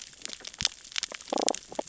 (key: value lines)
label: biophony, damselfish
recorder: SoundTrap 600 or HydroMoth